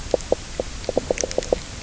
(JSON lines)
{"label": "biophony, knock croak", "recorder": "SoundTrap 300"}